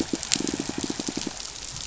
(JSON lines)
{"label": "biophony, pulse", "recorder": "SoundTrap 500"}